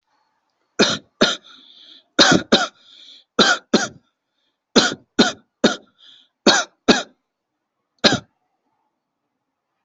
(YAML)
expert_labels:
- quality: ok
  cough_type: dry
  dyspnea: false
  wheezing: false
  stridor: false
  choking: false
  congestion: false
  nothing: true
  diagnosis: COVID-19
  severity: mild
- quality: ok
  cough_type: dry
  dyspnea: false
  wheezing: false
  stridor: true
  choking: false
  congestion: false
  nothing: true
  diagnosis: obstructive lung disease
  severity: mild
- quality: good
  cough_type: dry
  dyspnea: false
  wheezing: false
  stridor: false
  choking: false
  congestion: false
  nothing: true
  diagnosis: obstructive lung disease
  severity: severe
- quality: good
  cough_type: dry
  dyspnea: false
  wheezing: false
  stridor: false
  choking: false
  congestion: false
  nothing: true
  diagnosis: upper respiratory tract infection
  severity: severe
age: 21
gender: female
respiratory_condition: true
fever_muscle_pain: true
status: COVID-19